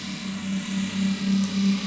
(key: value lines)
label: anthrophony, boat engine
recorder: SoundTrap 500